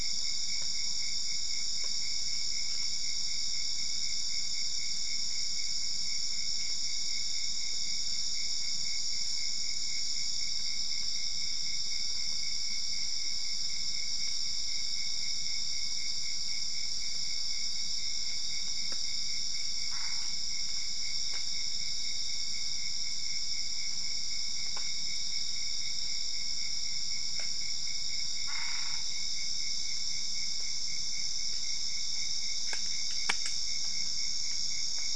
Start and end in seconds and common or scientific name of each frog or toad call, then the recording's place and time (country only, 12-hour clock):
19.8	20.4	Boana albopunctata
28.4	29.0	Boana albopunctata
Brazil, 1:00am